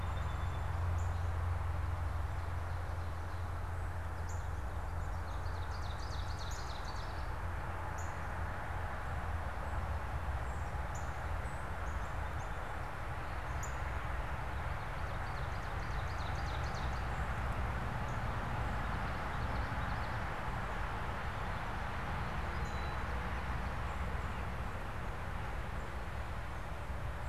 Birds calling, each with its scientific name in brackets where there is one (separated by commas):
Northern Cardinal (Cardinalis cardinalis), Ovenbird (Seiurus aurocapilla), Common Yellowthroat (Geothlypis trichas), Song Sparrow (Melospiza melodia), Black-capped Chickadee (Poecile atricapillus)